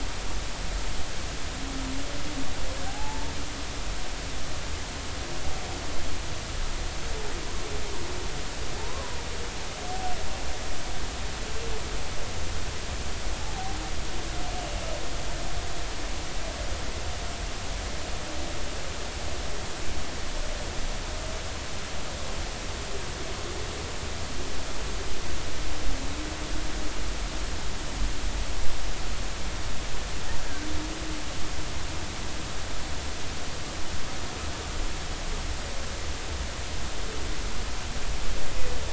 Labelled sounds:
2.9	3.3	humpback whale, 0.80 to 0.99 kHz
8.8	9.2	humpback whale, 0.80 to 1.2 kHz
13.4	13.8	humpback whale, 0.80 to 0.90 kHz

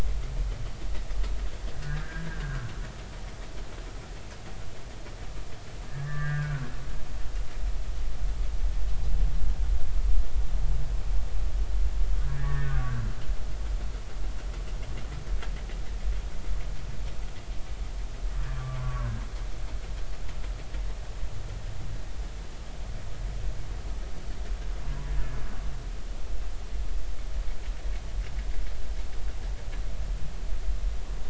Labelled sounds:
1.8	2.7	humpback whale, 1.3 to 1.9 kHz
5.9	6.7	humpback whale, 1.1 to 2.0 kHz
12.2	13.0	humpback whale, 1.1 to 2.0 kHz
18.5	19.1	humpback whale, 0.96 to 1.2 kHz

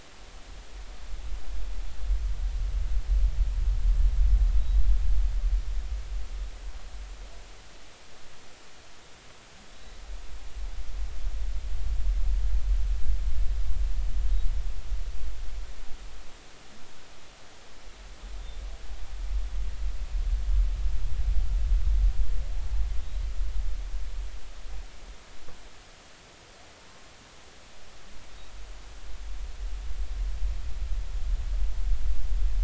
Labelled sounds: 22.6	22.8	humpback whale, 0.80 to 0.93 kHz

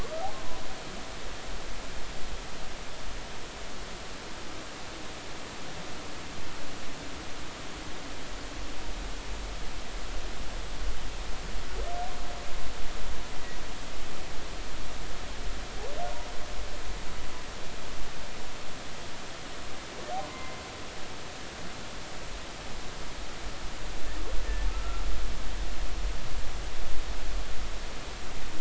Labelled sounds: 0.0	0.2	humpback whale, 1.1 to 1.3 kHz
20.2	20.6	humpback whale, 0.93 to 2.1 kHz
24.7	25.0	humpback whale, 1.2 to 1.4 kHz

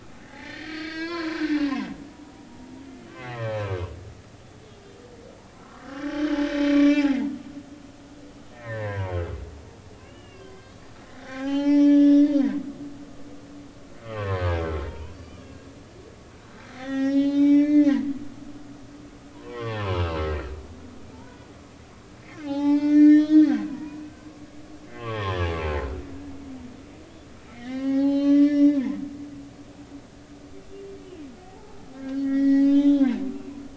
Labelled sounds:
0.2	1.9	humpback whale, 0.80 to 5.5 kHz
3.1	3.9	humpback whale, 0.93 to 2.2 kHz
5.6	6.4	humpback whale, 1.0 to 3.2 kHz
6.7	7.1	humpback whale, 2.3 to 2.4 kHz
8.5	9.1	humpback whale, 0.86 to 2.4 kHz
10.0	10.8	humpback whale, 0.99 to 4.0 kHz
11.2	12.3	humpback whale, 0.80 to 6.1 kHz
14.0	15.7	humpback whale, 0.90 to 4.9 kHz
16.3	18.9	humpback whale, 0.80 to 7.0 kHz
19.3	20.5	humpback whale, 0.86 to 3.5 kHz
21.1	21.5	humpback whale, 0.83 to 1.5 kHz
22.4	24.5	humpback whale, 0.80 to 6.3 kHz
24.9	25.4	humpback whale, 0.96 to 3.5 kHz
25.7	26.1	humpback whale, 1.3 to 1.5 kHz
27.5	28.8	humpback whale, 0.80 to 6.4 kHz
31.4	33.1	humpback whale, 0.80 to 5.6 kHz

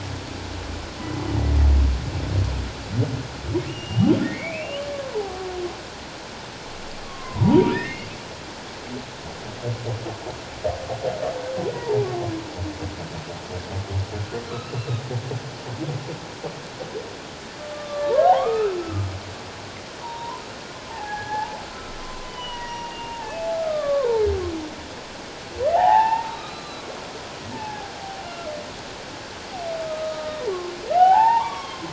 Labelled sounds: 3.7	4.8	humpback whale, 2.0 to 3.2 kHz
5.1	5.5	humpback whale, 0.78 to 1.0 kHz
7.0	8.1	humpback whale, 0.84 to 2.9 kHz
11.7	12.0	humpback whale, 0.78 to 1.0 kHz
14.5	14.9	humpback whale, 1.1 to 2.8 kHz
17.7	19.1	humpback whale, 0.78 to 1.4 kHz
20.0	20.4	humpback whale, 0.84 to 1.1 kHz
20.9	24.2	humpback whale, 0.78 to 5.8 kHz
25.7	27.0	humpback whale, 0.78 to 4.1 kHz
27.5	28.5	humpback whale, 0.78 to 1.4 kHz
29.9	31.9	humpback whale, 0.78 to 3.5 kHz

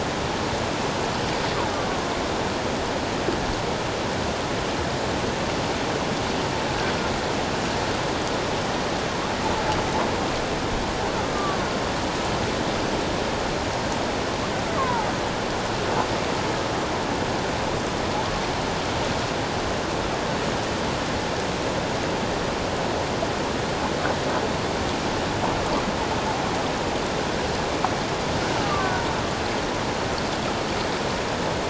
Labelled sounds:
1.7	2.0	killer whale, Bigg's (transient), 1.1 to 1.2 kHz
14.7	15.1	killer whale, Bigg's (transient), 0.81 to 1.3 kHz
28.6	29.0	killer whale, Bigg's (transient), 1.0 to 1.6 kHz

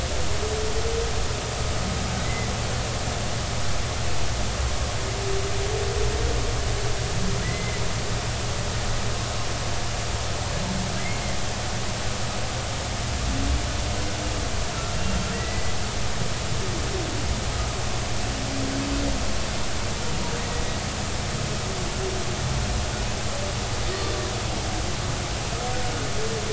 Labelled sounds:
2.2	2.5	humpback whale, 2.0 to 2.1 kHz
7.4	7.8	humpback whale, 1.9 to 2.1 kHz
15.3	15.7	humpback whale, 1.8 to 2.1 kHz

